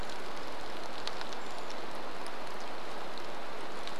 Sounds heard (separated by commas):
rain, Brown Creeper call